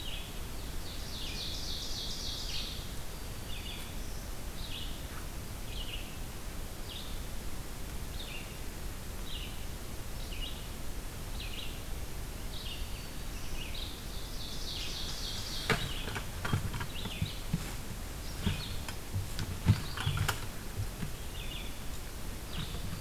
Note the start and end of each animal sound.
[0.00, 13.97] Red-eyed Vireo (Vireo olivaceus)
[0.53, 2.73] Ovenbird (Seiurus aurocapilla)
[3.06, 4.29] Black-throated Green Warbler (Setophaga virens)
[12.33, 13.69] Black-throated Green Warbler (Setophaga virens)
[13.88, 15.63] Ovenbird (Seiurus aurocapilla)
[15.74, 23.01] Red-eyed Vireo (Vireo olivaceus)

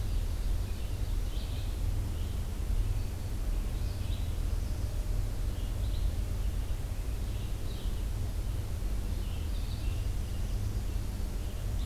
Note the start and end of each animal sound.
[0.00, 1.28] Ovenbird (Seiurus aurocapilla)
[0.00, 11.86] Red-eyed Vireo (Vireo olivaceus)
[2.79, 3.45] Black-throated Green Warbler (Setophaga virens)

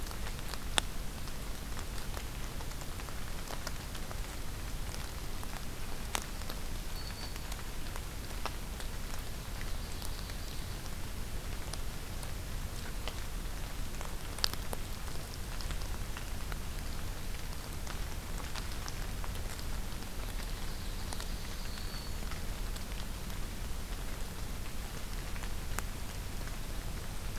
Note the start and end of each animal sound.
[6.71, 7.63] Black-throated Green Warbler (Setophaga virens)
[8.98, 10.77] Ovenbird (Seiurus aurocapilla)
[20.15, 21.78] Ovenbird (Seiurus aurocapilla)
[21.11, 22.29] Black-throated Green Warbler (Setophaga virens)

